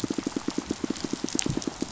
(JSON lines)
{"label": "biophony, pulse", "recorder": "SoundTrap 500"}